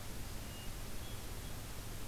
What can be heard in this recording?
Hermit Thrush